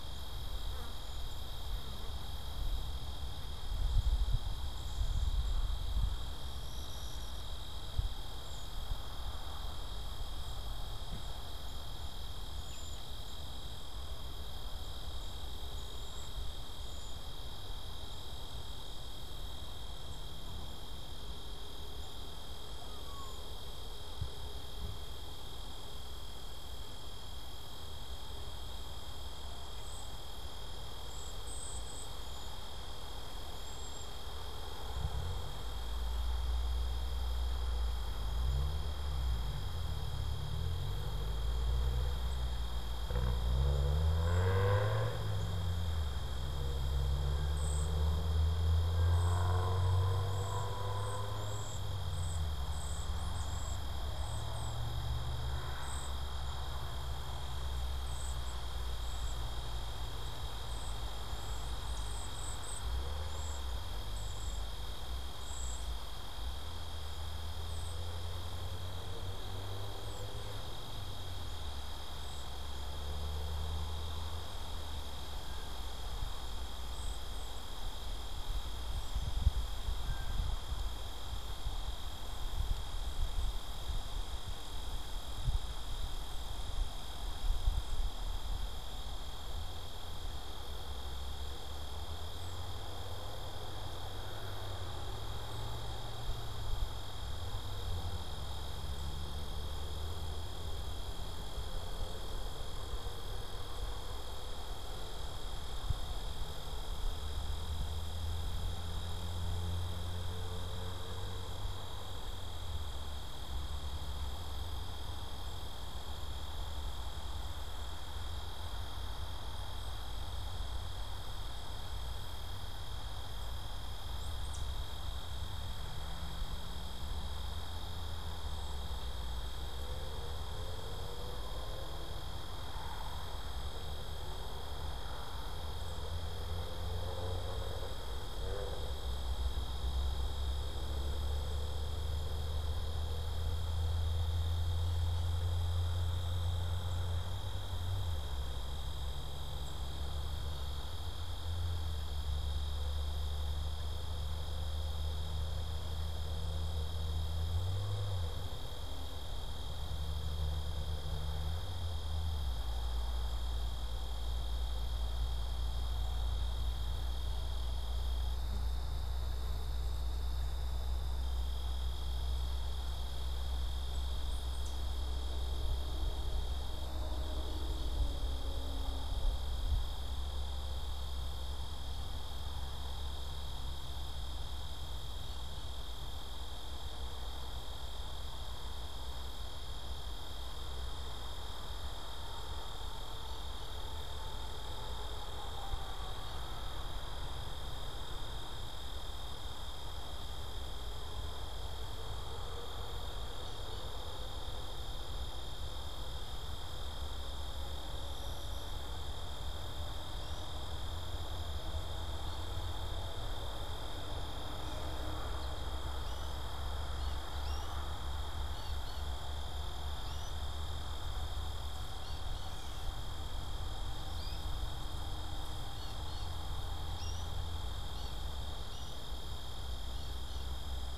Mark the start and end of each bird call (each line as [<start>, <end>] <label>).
[0.21, 5.81] Cedar Waxwing (Bombycilla cedrorum)
[8.21, 8.81] Cedar Waxwing (Bombycilla cedrorum)
[10.31, 23.51] Cedar Waxwing (Bombycilla cedrorum)
[29.71, 34.41] Cedar Waxwing (Bombycilla cedrorum)
[44.11, 68.21] Cedar Waxwing (Bombycilla cedrorum)
[72.01, 72.81] Cedar Waxwing (Bombycilla cedrorum)
[76.81, 77.91] Cedar Waxwing (Bombycilla cedrorum)
[78.71, 92.91] unidentified bird
[79.91, 80.51] Blue Jay (Cyanocitta cristata)
[124.01, 124.81] Tufted Titmouse (Baeolophus bicolor)
[173.91, 174.91] Tufted Titmouse (Baeolophus bicolor)
[215.11, 230.97] American Goldfinch (Spinus tristis)